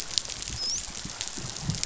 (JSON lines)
{"label": "biophony, dolphin", "recorder": "SoundTrap 500"}